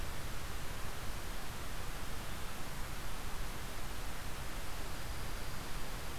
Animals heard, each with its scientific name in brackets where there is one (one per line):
Dark-eyed Junco (Junco hyemalis)